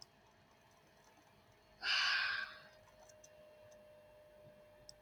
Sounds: Sigh